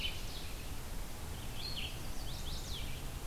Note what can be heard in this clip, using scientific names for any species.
Seiurus aurocapilla, Vireo olivaceus, Setophaga pensylvanica